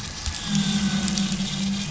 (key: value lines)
label: anthrophony, boat engine
recorder: SoundTrap 500